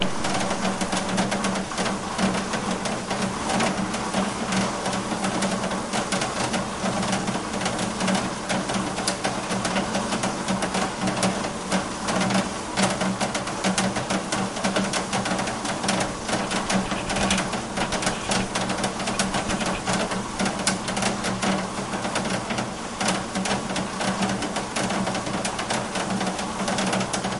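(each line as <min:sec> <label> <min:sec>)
0:00.0 Raindrops patter non-rhythmically on a plastic roof. 0:27.4
0:00.0 A steady downpour of moderate rain hitting the ground creates background white noise outdoors. 0:27.4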